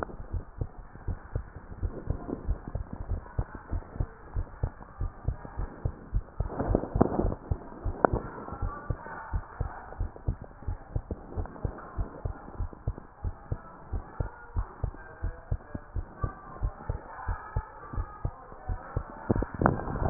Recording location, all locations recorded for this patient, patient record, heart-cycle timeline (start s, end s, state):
tricuspid valve (TV)
aortic valve (AV)+pulmonary valve (PV)+tricuspid valve (TV)+mitral valve (MV)
#Age: Child
#Sex: Female
#Height: 133.0 cm
#Weight: 39.4 kg
#Pregnancy status: False
#Murmur: Absent
#Murmur locations: nan
#Most audible location: nan
#Systolic murmur timing: nan
#Systolic murmur shape: nan
#Systolic murmur grading: nan
#Systolic murmur pitch: nan
#Systolic murmur quality: nan
#Diastolic murmur timing: nan
#Diastolic murmur shape: nan
#Diastolic murmur grading: nan
#Diastolic murmur pitch: nan
#Diastolic murmur quality: nan
#Outcome: Normal
#Campaign: 2015 screening campaign
0.00	8.37	unannotated
8.37	8.60	diastole
8.60	8.74	S1
8.74	8.88	systole
8.88	8.98	S2
8.98	9.30	diastole
9.30	9.44	S1
9.44	9.58	systole
9.58	9.72	S2
9.72	9.98	diastole
9.98	10.12	S1
10.12	10.26	systole
10.26	10.40	S2
10.40	10.66	diastole
10.66	10.78	S1
10.78	10.94	systole
10.94	11.04	S2
11.04	11.34	diastole
11.34	11.48	S1
11.48	11.62	systole
11.62	11.76	S2
11.76	11.98	diastole
11.98	12.08	S1
12.08	12.24	systole
12.24	12.34	S2
12.34	12.58	diastole
12.58	12.70	S1
12.70	12.86	systole
12.86	12.98	S2
12.98	13.24	diastole
13.24	13.34	S1
13.34	13.50	systole
13.50	13.60	S2
13.60	13.90	diastole
13.90	14.04	S1
14.04	14.18	systole
14.18	14.30	S2
14.30	14.56	diastole
14.56	14.68	S1
14.68	14.82	systole
14.82	14.96	S2
14.96	15.24	diastole
15.24	15.36	S1
15.36	15.50	systole
15.50	15.60	S2
15.60	15.94	diastole
15.94	16.06	S1
16.06	16.22	systole
16.22	16.32	S2
16.32	16.60	diastole
16.60	16.74	S1
16.74	16.88	systole
16.88	17.00	S2
17.00	17.26	diastole
17.26	17.38	S1
17.38	17.54	systole
17.54	17.66	S2
17.66	17.94	diastole
17.94	18.08	S1
18.08	18.20	systole
18.20	18.32	S2
18.32	18.68	diastole
18.68	18.80	S1
18.80	18.92	systole
18.92	19.04	S2
19.04	19.20	diastole
19.20	20.10	unannotated